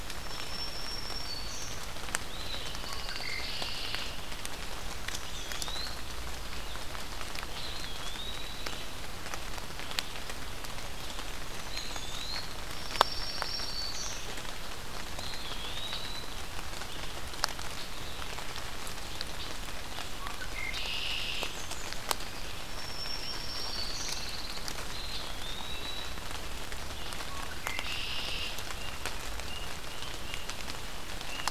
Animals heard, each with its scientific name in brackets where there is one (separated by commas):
Blackburnian Warbler (Setophaga fusca), Black-throated Green Warbler (Setophaga virens), Eastern Wood-Pewee (Contopus virens), Pine Warbler (Setophaga pinus), Red-winged Blackbird (Agelaius phoeniceus)